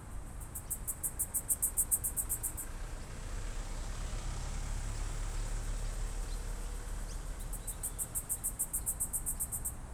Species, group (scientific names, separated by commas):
Yoyetta celis, Cicadidae